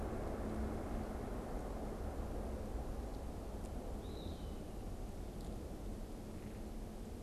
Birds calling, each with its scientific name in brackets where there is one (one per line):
Eastern Wood-Pewee (Contopus virens)